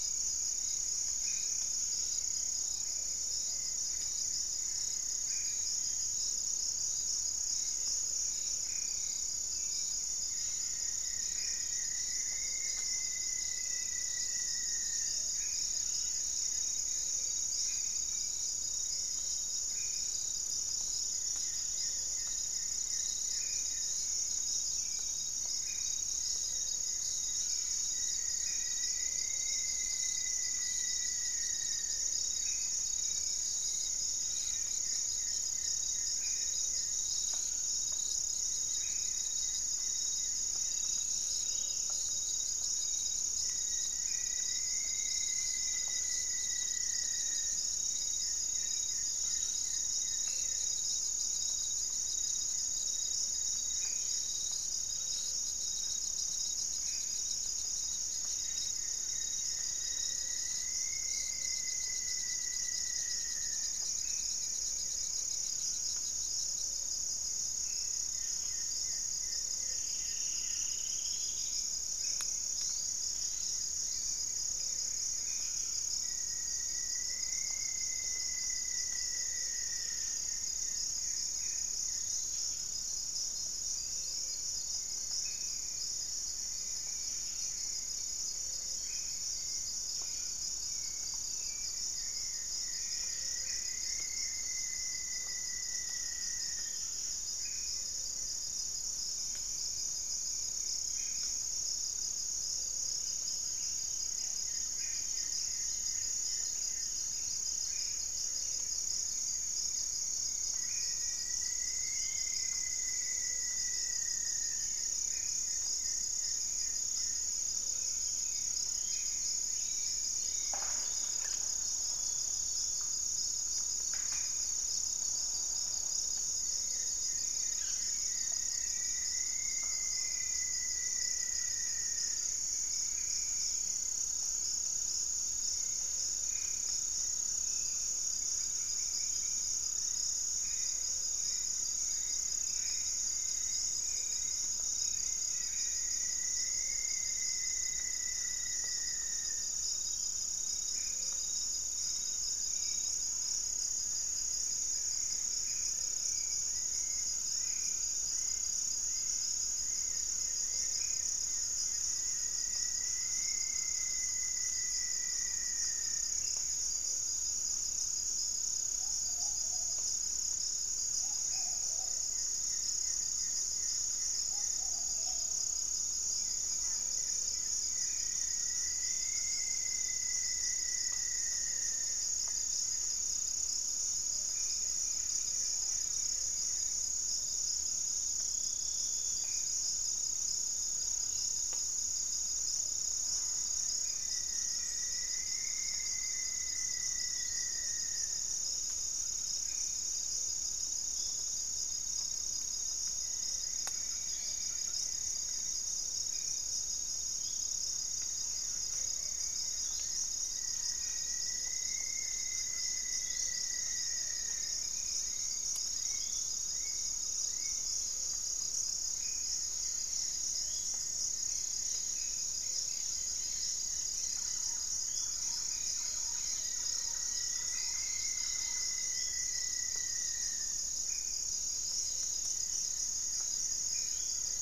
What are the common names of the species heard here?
Buff-breasted Wren, Gray-fronted Dove, Black-faced Antthrush, Goeldi's Antbird, Bluish-fronted Jacamar, Rufous-fronted Antthrush, Plumbeous Pigeon, Yellow-margined Flycatcher, unidentified bird, Striped Woodcreeper, Hauxwell's Thrush, Little Woodpecker, Cobalt-winged Parakeet, Thrush-like Wren